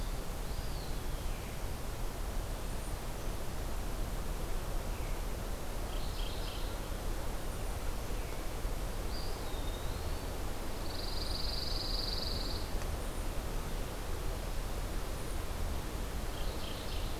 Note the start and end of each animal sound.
[0.27, 1.57] Eastern Wood-Pewee (Contopus virens)
[5.76, 6.89] Mourning Warbler (Geothlypis philadelphia)
[8.96, 10.38] Eastern Wood-Pewee (Contopus virens)
[10.58, 12.72] Pine Warbler (Setophaga pinus)
[16.08, 17.20] Mourning Warbler (Geothlypis philadelphia)

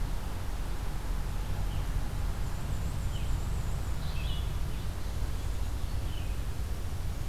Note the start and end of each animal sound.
[2.22, 4.05] Black-and-white Warbler (Mniotilta varia)
[3.92, 6.50] Red-eyed Vireo (Vireo olivaceus)

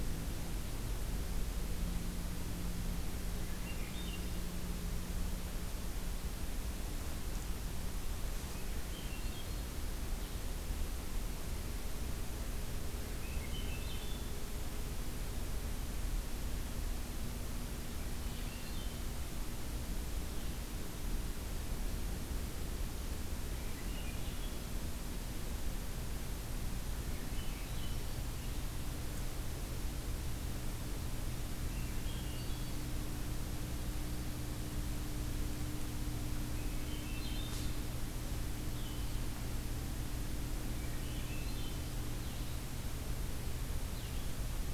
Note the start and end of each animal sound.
[3.23, 4.70] Swainson's Thrush (Catharus ustulatus)
[8.33, 9.61] Swainson's Thrush (Catharus ustulatus)
[12.92, 14.31] Swainson's Thrush (Catharus ustulatus)
[18.04, 19.18] Swainson's Thrush (Catharus ustulatus)
[23.47, 24.76] Swainson's Thrush (Catharus ustulatus)
[26.76, 28.16] Swainson's Thrush (Catharus ustulatus)
[31.39, 33.00] Swainson's Thrush (Catharus ustulatus)
[36.49, 37.69] Blue-headed Vireo (Vireo solitarius)
[38.67, 39.23] Blue-headed Vireo (Vireo solitarius)
[40.51, 41.94] Swainson's Thrush (Catharus ustulatus)
[42.07, 44.39] Blue-headed Vireo (Vireo solitarius)

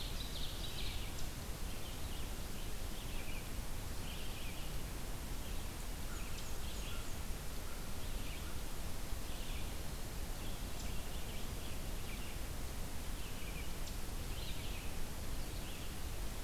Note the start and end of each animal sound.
[0.00, 1.18] Ovenbird (Seiurus aurocapilla)
[0.00, 4.72] Red-eyed Vireo (Vireo olivaceus)
[5.20, 16.44] Red-eyed Vireo (Vireo olivaceus)
[5.53, 7.34] Black-and-white Warbler (Mniotilta varia)
[5.96, 8.73] American Crow (Corvus brachyrhynchos)

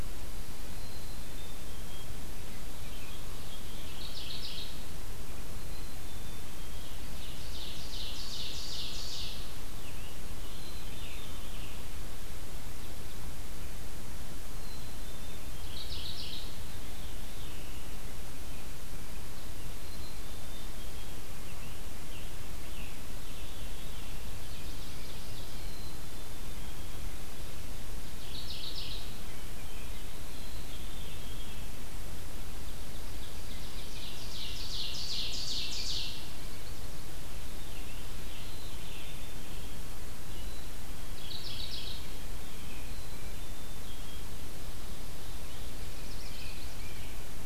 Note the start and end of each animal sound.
[0.67, 2.13] Black-capped Chickadee (Poecile atricapillus)
[3.46, 4.79] Mourning Warbler (Geothlypis philadelphia)
[5.46, 6.92] Black-capped Chickadee (Poecile atricapillus)
[6.87, 9.47] Ovenbird (Seiurus aurocapilla)
[9.75, 11.94] American Robin (Turdus migratorius)
[10.13, 11.11] Black-capped Chickadee (Poecile atricapillus)
[10.54, 11.78] Veery (Catharus fuscescens)
[14.46, 15.45] Black-capped Chickadee (Poecile atricapillus)
[15.42, 16.64] Mourning Warbler (Geothlypis philadelphia)
[16.31, 17.87] Veery (Catharus fuscescens)
[19.69, 20.88] Black-capped Chickadee (Poecile atricapillus)
[20.89, 23.53] American Robin (Turdus migratorius)
[23.31, 24.41] Veery (Catharus fuscescens)
[24.30, 25.51] Ovenbird (Seiurus aurocapilla)
[25.51, 26.57] Black-capped Chickadee (Poecile atricapillus)
[28.02, 29.17] Mourning Warbler (Geothlypis philadelphia)
[28.99, 30.70] American Robin (Turdus migratorius)
[30.34, 31.69] Black-capped Chickadee (Poecile atricapillus)
[30.59, 31.69] Veery (Catharus fuscescens)
[32.82, 36.32] Ovenbird (Seiurus aurocapilla)
[37.37, 40.51] Scarlet Tanager (Piranga olivacea)
[38.37, 39.14] Black-capped Chickadee (Poecile atricapillus)
[41.03, 42.14] Mourning Warbler (Geothlypis philadelphia)
[42.16, 43.19] American Robin (Turdus migratorius)
[42.74, 44.26] Black-capped Chickadee (Poecile atricapillus)
[45.72, 47.45] House Wren (Troglodytes aedon)

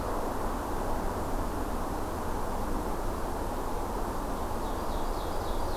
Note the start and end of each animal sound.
[4.31, 5.76] Ovenbird (Seiurus aurocapilla)

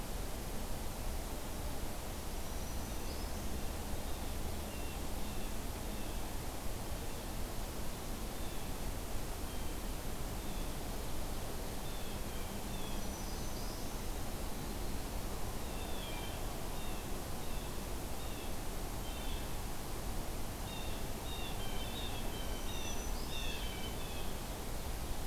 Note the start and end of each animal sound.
[2.45, 3.46] Black-throated Green Warbler (Setophaga virens)
[3.79, 6.29] Blue Jay (Cyanocitta cristata)
[8.18, 10.83] Blue Jay (Cyanocitta cristata)
[11.71, 13.05] Blue Jay (Cyanocitta cristata)
[12.78, 13.94] Black-throated Green Warbler (Setophaga virens)
[15.60, 19.48] Blue Jay (Cyanocitta cristata)
[20.54, 24.31] Blue Jay (Cyanocitta cristata)
[22.40, 23.59] Black-throated Green Warbler (Setophaga virens)

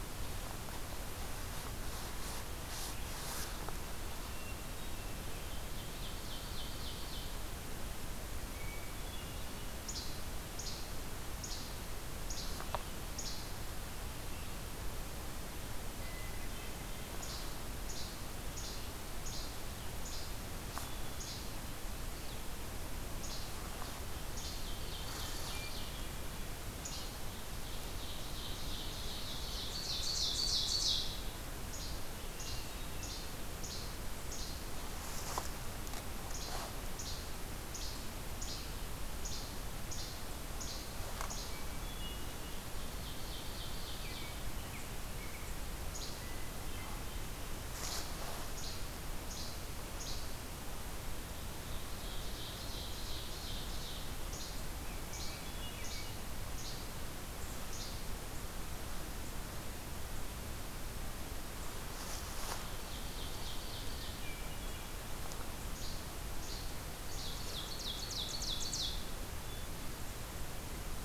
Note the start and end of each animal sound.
[4.18, 5.34] Hermit Thrush (Catharus guttatus)
[5.29, 7.45] Ovenbird (Seiurus aurocapilla)
[8.41, 9.78] Hermit Thrush (Catharus guttatus)
[9.69, 10.12] Least Flycatcher (Empidonax minimus)
[10.47, 10.88] Least Flycatcher (Empidonax minimus)
[11.35, 11.69] Least Flycatcher (Empidonax minimus)
[12.25, 12.51] Least Flycatcher (Empidonax minimus)
[13.12, 13.52] Least Flycatcher (Empidonax minimus)
[15.70, 17.09] Hermit Thrush (Catharus guttatus)
[17.20, 17.48] Least Flycatcher (Empidonax minimus)
[17.88, 18.11] Least Flycatcher (Empidonax minimus)
[18.44, 18.84] Least Flycatcher (Empidonax minimus)
[19.26, 19.47] Least Flycatcher (Empidonax minimus)
[20.05, 20.26] Least Flycatcher (Empidonax minimus)
[20.50, 21.57] Hermit Thrush (Catharus guttatus)
[21.13, 21.52] Least Flycatcher (Empidonax minimus)
[23.18, 23.49] Least Flycatcher (Empidonax minimus)
[23.95, 26.12] Ovenbird (Seiurus aurocapilla)
[24.32, 24.66] Least Flycatcher (Empidonax minimus)
[25.06, 25.65] Red Squirrel (Tamiasciurus hudsonicus)
[26.54, 27.29] Least Flycatcher (Empidonax minimus)
[27.57, 31.30] Ovenbird (Seiurus aurocapilla)
[31.54, 31.97] Least Flycatcher (Empidonax minimus)
[32.25, 33.24] Hermit Thrush (Catharus guttatus)
[32.36, 32.62] Least Flycatcher (Empidonax minimus)
[32.94, 33.32] Least Flycatcher (Empidonax minimus)
[33.64, 33.88] Least Flycatcher (Empidonax minimus)
[34.19, 34.64] Least Flycatcher (Empidonax minimus)
[36.24, 37.23] Least Flycatcher (Empidonax minimus)
[37.67, 37.96] Least Flycatcher (Empidonax minimus)
[38.38, 38.65] Least Flycatcher (Empidonax minimus)
[39.17, 39.49] Least Flycatcher (Empidonax minimus)
[39.88, 40.16] Least Flycatcher (Empidonax minimus)
[40.57, 40.90] Least Flycatcher (Empidonax minimus)
[41.24, 41.55] Least Flycatcher (Empidonax minimus)
[41.64, 42.60] Hermit Thrush (Catharus guttatus)
[42.66, 44.45] Ovenbird (Seiurus aurocapilla)
[43.50, 45.71] American Robin (Turdus migratorius)
[45.84, 46.22] Least Flycatcher (Empidonax minimus)
[46.17, 47.37] Hermit Thrush (Catharus guttatus)
[48.48, 48.78] Least Flycatcher (Empidonax minimus)
[49.18, 49.58] Least Flycatcher (Empidonax minimus)
[49.93, 50.35] Least Flycatcher (Empidonax minimus)
[51.38, 54.28] Ovenbird (Seiurus aurocapilla)
[54.28, 54.59] Least Flycatcher (Empidonax minimus)
[55.00, 56.19] Hermit Thrush (Catharus guttatus)
[55.05, 55.37] Least Flycatcher (Empidonax minimus)
[55.74, 56.07] Least Flycatcher (Empidonax minimus)
[56.52, 56.88] Least Flycatcher (Empidonax minimus)
[57.62, 58.01] Least Flycatcher (Empidonax minimus)
[62.31, 64.53] Ovenbird (Seiurus aurocapilla)
[63.82, 65.12] Hermit Thrush (Catharus guttatus)
[65.58, 66.95] Least Flycatcher (Empidonax minimus)
[67.00, 69.27] Ovenbird (Seiurus aurocapilla)

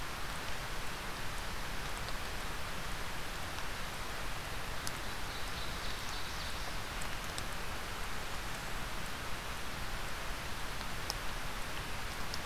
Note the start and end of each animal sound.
[4.84, 6.91] Ovenbird (Seiurus aurocapilla)
[8.04, 8.85] Blackburnian Warbler (Setophaga fusca)

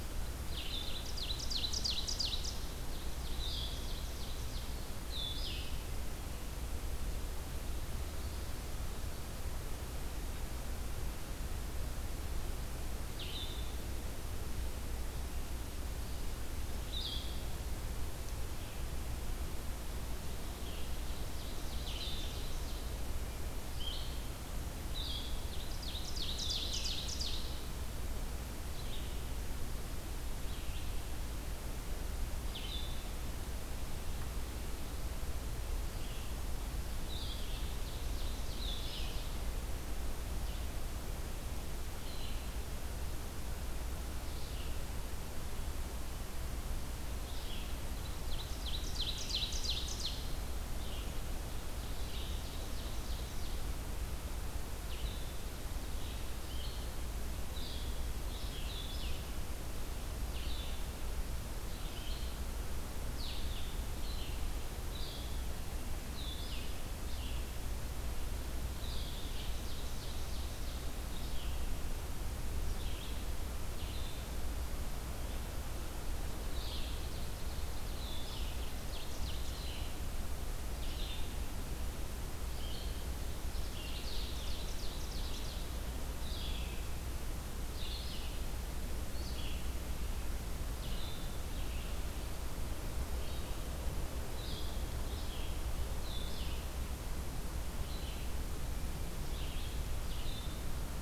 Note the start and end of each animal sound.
[0.45, 59.27] Red-eyed Vireo (Vireo olivaceus)
[0.67, 4.79] Ovenbird (Seiurus aurocapilla)
[20.20, 22.93] Ovenbird (Seiurus aurocapilla)
[25.36, 27.61] Ovenbird (Seiurus aurocapilla)
[36.98, 39.38] Ovenbird (Seiurus aurocapilla)
[48.14, 50.36] Ovenbird (Seiurus aurocapilla)
[51.76, 53.81] Ovenbird (Seiurus aurocapilla)
[60.31, 101.01] Blue-headed Vireo (Vireo solitarius)
[68.90, 71.15] Ovenbird (Seiurus aurocapilla)
[83.67, 85.80] Ovenbird (Seiurus aurocapilla)

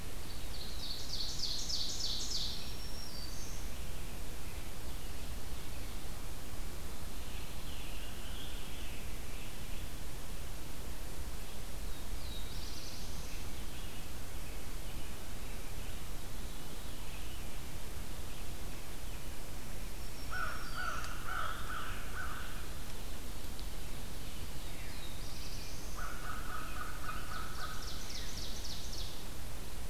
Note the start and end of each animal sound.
[0.00, 2.69] Ovenbird (Seiurus aurocapilla)
[2.26, 4.10] Black-throated Green Warbler (Setophaga virens)
[3.58, 6.00] American Robin (Turdus migratorius)
[7.02, 10.19] Scarlet Tanager (Piranga olivacea)
[11.72, 13.55] Black-throated Blue Warbler (Setophaga caerulescens)
[12.96, 16.09] American Robin (Turdus migratorius)
[15.90, 17.52] Veery (Catharus fuscescens)
[19.79, 21.19] Black-throated Green Warbler (Setophaga virens)
[20.07, 22.53] Scarlet Tanager (Piranga olivacea)
[20.11, 22.99] American Crow (Corvus brachyrhynchos)
[24.41, 26.28] Black-throated Blue Warbler (Setophaga caerulescens)
[24.56, 27.43] American Robin (Turdus migratorius)
[25.81, 28.01] American Crow (Corvus brachyrhynchos)
[26.86, 29.36] Ovenbird (Seiurus aurocapilla)

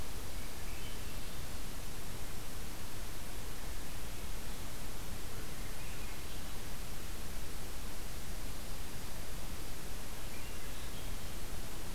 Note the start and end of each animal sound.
[0.00, 1.16] Swainson's Thrush (Catharus ustulatus)
[5.43, 6.58] Swainson's Thrush (Catharus ustulatus)
[10.14, 11.28] Swainson's Thrush (Catharus ustulatus)

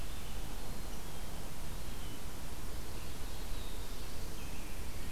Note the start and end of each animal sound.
[0.00, 5.11] Red-eyed Vireo (Vireo olivaceus)
[0.49, 1.49] Black-capped Chickadee (Poecile atricapillus)
[3.34, 4.75] Black-throated Blue Warbler (Setophaga caerulescens)
[4.20, 5.11] American Robin (Turdus migratorius)

